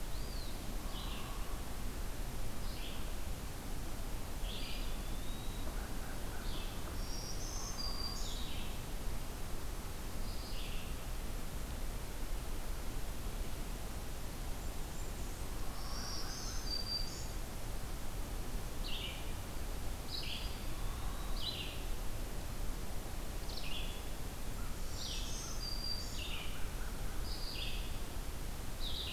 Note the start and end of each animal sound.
[0.00, 0.65] Eastern Wood-Pewee (Contopus virens)
[0.00, 29.13] Red-eyed Vireo (Vireo olivaceus)
[0.68, 1.64] Pileated Woodpecker (Dryocopus pileatus)
[4.38, 5.72] Eastern Wood-Pewee (Contopus virens)
[6.80, 8.48] Black-throated Green Warbler (Setophaga virens)
[14.24, 15.79] Blackburnian Warbler (Setophaga fusca)
[15.70, 17.37] Black-throated Green Warbler (Setophaga virens)
[19.89, 21.41] Eastern Wood-Pewee (Contopus virens)
[24.52, 25.67] Blackburnian Warbler (Setophaga fusca)
[24.82, 26.37] Black-throated Green Warbler (Setophaga virens)
[25.25, 27.02] American Robin (Turdus migratorius)

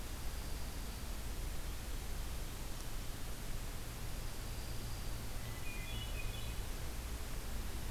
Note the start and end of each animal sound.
[0.00, 1.27] Dark-eyed Junco (Junco hyemalis)
[4.10, 5.38] Dark-eyed Junco (Junco hyemalis)
[5.36, 6.71] Hermit Thrush (Catharus guttatus)

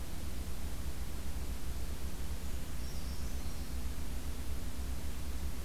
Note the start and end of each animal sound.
[2.36, 3.89] Brown Creeper (Certhia americana)

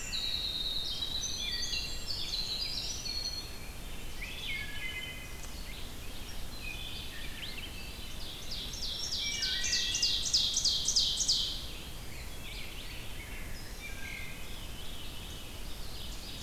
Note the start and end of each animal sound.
[0.00, 3.89] Winter Wren (Troglodytes hiemalis)
[1.31, 2.27] Wood Thrush (Hylocichla mustelina)
[4.05, 5.41] Wood Thrush (Hylocichla mustelina)
[5.50, 16.42] Red-eyed Vireo (Vireo olivaceus)
[6.39, 7.60] Wood Thrush (Hylocichla mustelina)
[7.25, 11.64] Ovenbird (Seiurus aurocapilla)
[8.42, 10.01] Black-throated Green Warbler (Setophaga virens)
[9.16, 10.02] Wood Thrush (Hylocichla mustelina)
[11.70, 12.68] Eastern Wood-Pewee (Contopus virens)
[13.57, 14.73] Wood Thrush (Hylocichla mustelina)
[13.93, 15.71] Veery (Catharus fuscescens)
[15.55, 16.42] Ovenbird (Seiurus aurocapilla)

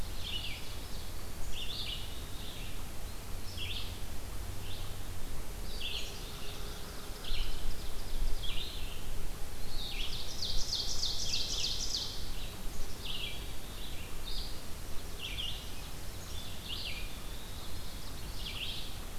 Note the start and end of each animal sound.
[0.00, 1.22] Ovenbird (Seiurus aurocapilla)
[0.00, 18.90] Red-eyed Vireo (Vireo olivaceus)
[5.92, 6.86] Black-capped Chickadee (Poecile atricapillus)
[6.87, 8.55] Ovenbird (Seiurus aurocapilla)
[9.75, 12.35] Ovenbird (Seiurus aurocapilla)
[12.60, 13.79] Black-capped Chickadee (Poecile atricapillus)
[14.65, 16.52] Yellow-rumped Warbler (Setophaga coronata)
[16.80, 18.21] Eastern Wood-Pewee (Contopus virens)
[17.20, 18.62] Ovenbird (Seiurus aurocapilla)

